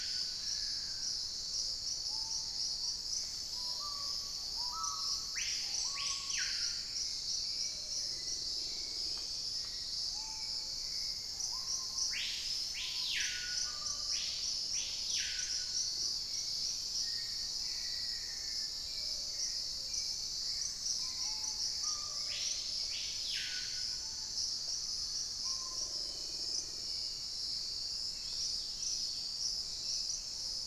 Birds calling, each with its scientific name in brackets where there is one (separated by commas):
Hauxwell's Thrush (Turdus hauxwelli), Screaming Piha (Lipaugus vociferans), Black-faced Antthrush (Formicarius analis), Golden-green Woodpecker (Piculus chrysochloros), Chestnut-winged Foliage-gleaner (Dendroma erythroptera), Black-spotted Bare-eye (Phlegopsis nigromaculata), Dusky-capped Greenlet (Pachysylvia hypoxantha), unidentified bird